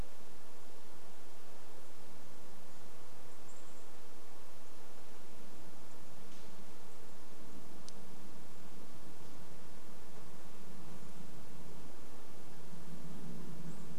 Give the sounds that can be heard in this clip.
unidentified bird chip note, airplane